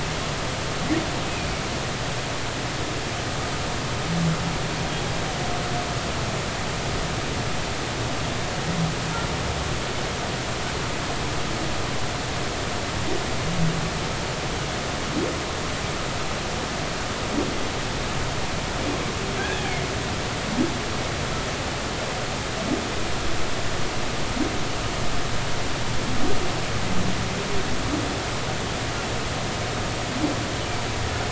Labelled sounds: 1.2	1.5	humpback whale, 2.4 to 2.6 kHz
19.4	19.6	humpback whale, 1.5 to 1.8 kHz

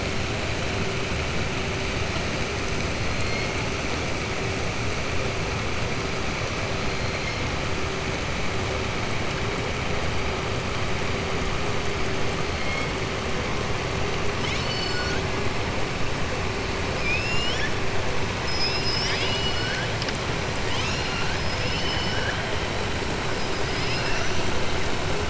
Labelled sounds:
14.3	15.2	killer whale, southern resident, 1.5 to 7.4 kHz
21.6	22.4	killer whale, southern resident, 1.5 to 6.0 kHz

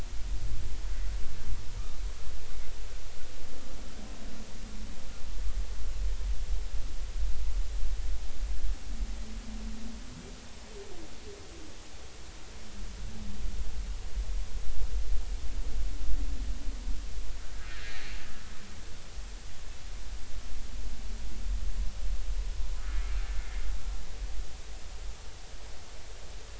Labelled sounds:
17.7	18.0	humpback whale, 1.5 to 2.0 kHz

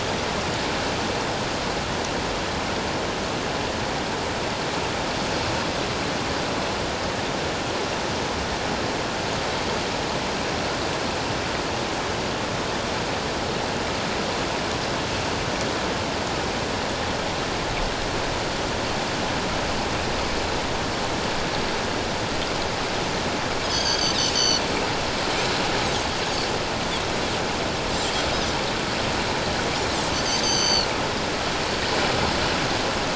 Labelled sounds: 22.9	24.6	Pacific white-sided dolphin, 2.9 to 6.7 kHz
30.2	30.9	Pacific white-sided dolphin, 2.8 to 6.4 kHz

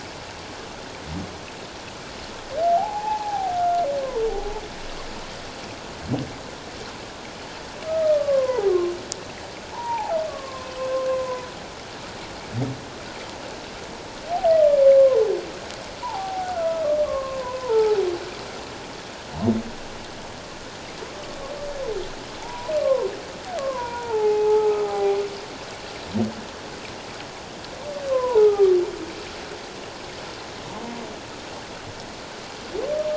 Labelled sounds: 2.7	3.8	humpback whale, 0.78 to 2.6 kHz
7.9	8.9	humpback whale, 0.91 to 1.3 kHz
9.7	11.5	humpback whale, 0.78 to 1.2 kHz
16.0	18.1	humpback whale, 0.78 to 1.5 kHz
22.4	23.1	humpback whale, 0.78 to 1.2 kHz
23.6	25.2	humpback whale, 0.78 to 2.6 kHz
28.1	28.7	humpback whale, 0.78 to 1.3 kHz

